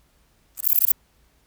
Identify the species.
Antaxius difformis